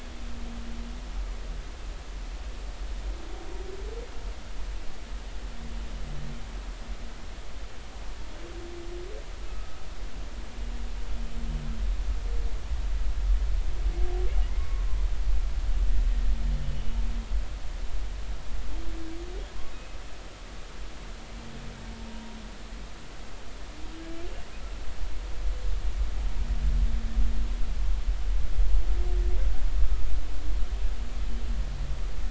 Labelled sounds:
9.5	9.8	humpback whale, 1.2 to 1.4 kHz
14.6	14.9	humpback whale, 0.99 to 1.2 kHz
19.7	20.0	humpback whale, 2.5 to 2.6 kHz

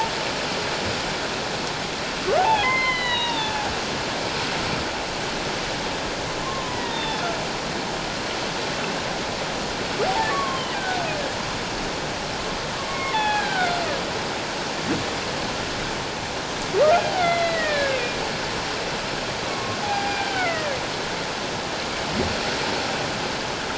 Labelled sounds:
2.4	3.6	humpback whale, 0.78 to 4.2 kHz
6.4	7.2	humpback whale, 0.84 to 3.7 kHz
10.3	11.0	humpback whale, 1.0 to 3.2 kHz
12.9	13.8	humpback whale, 0.78 to 3.5 kHz
17.2	18.2	humpback whale, 1.5 to 4.2 kHz
19.5	20.8	humpback whale, 0.78 to 4.9 kHz

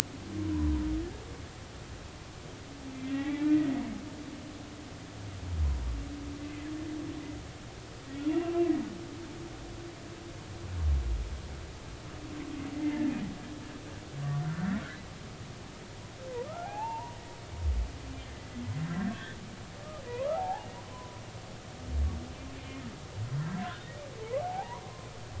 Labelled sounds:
0.5	0.8	humpback whale, 0.90 to 1.1 kHz
3.0	3.8	humpback whale, 1.8 to 2.4 kHz
8.1	8.6	humpback whale, 2.6 to 3.5 kHz
12.7	13.0	humpback whale, 2.0 to 2.1 kHz
14.4	14.7	humpback whale, 1.3 to 1.6 kHz
16.6	17.2	humpback whale, 0.80 to 2.8 kHz
18.2	18.5	humpback whale, 2.0 to 2.1 kHz
20.1	21.2	humpback whale, 0.80 to 1.4 kHz
22.6	22.8	humpback whale, 2.1 to 2.2 kHz
23.6	24.8	humpback whale, 0.80 to 1.8 kHz

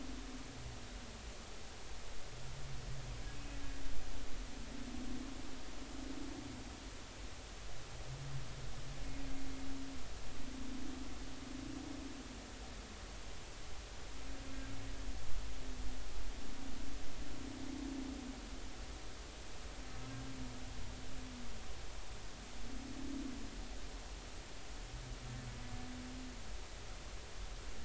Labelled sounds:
3.3	3.6	humpback whale, 2.5 to 2.6 kHz

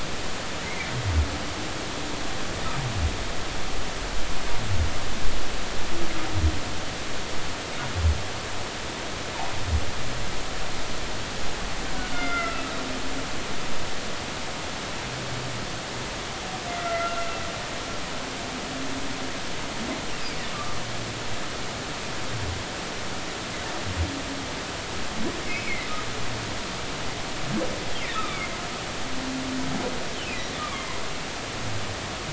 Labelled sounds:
12.1	12.6	humpback whale, 1.3 to 3.7 kHz
16.8	17.2	humpback whale, 1.3 to 2.1 kHz
20.1	20.4	humpback whale, 2.2 to 2.8 kHz
25.4	25.9	humpback whale, 1.9 to 2.6 kHz
28.2	28.5	humpback whale, 2.0 to 2.5 kHz
30.1	30.9	humpback whale, 1.0 to 3.2 kHz

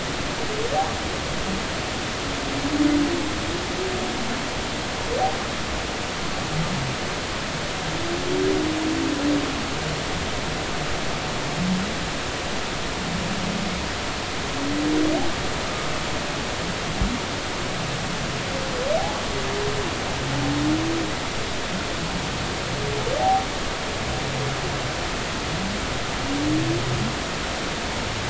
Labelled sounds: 19.0	19.2	humpback whale, 0.80 to 0.93 kHz
23.2	23.4	humpback whale, 0.80 to 0.93 kHz

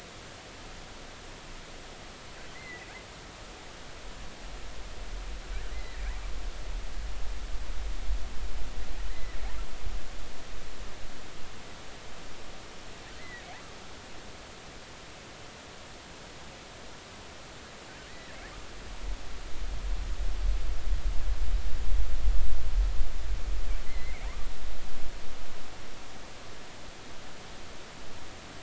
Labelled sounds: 2.5	2.9	killer whale, offshore, 1.9 to 2.1 kHz
5.7	6.0	killer whale, offshore, 1.8 to 2.1 kHz
9.1	9.4	killer whale, offshore, 1.8 to 2.1 kHz
13.2	13.5	killer whale, offshore, 1.8 to 2.1 kHz
18.1	18.4	killer whale, offshore, 1.7 to 2.0 kHz
23.9	24.3	killer whale, offshore, 1.9 to 2.3 kHz

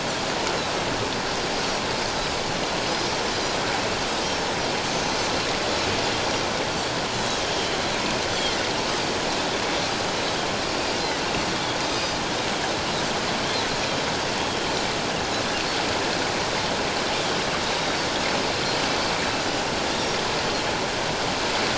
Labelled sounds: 1.4	1.6	Pacific white-sided dolphin, 4.8 to 5.0 kHz
3.3	4.5	Pacific white-sided dolphin, 4.8 to 5.7 kHz
4.9	5.4	Pacific white-sided dolphin, 5.8 to 6.4 kHz
7.1	7.8	Pacific white-sided dolphin, 2.9 to 4.4 kHz
8.3	8.6	Pacific white-sided dolphin, 3.1 to 3.5 kHz
11.9	12.2	Pacific white-sided dolphin, 4.7 to 5.1 kHz

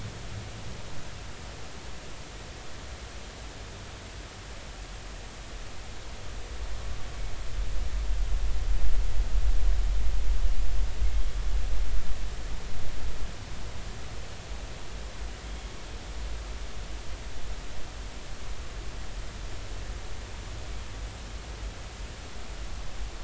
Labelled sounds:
15.4	15.7	humpback whale, 3.1 to 3.4 kHz

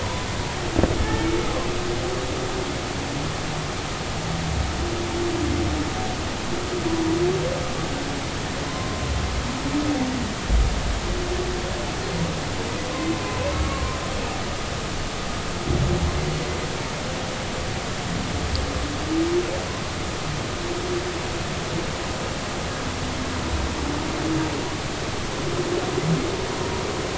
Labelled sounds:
1.0	1.3	humpback whale, 1.7 to 1.9 kHz
8.6	9.1	humpback whale, 0.96 to 1.1 kHz
13.6	14.0	humpback whale, 0.99 to 1.2 kHz

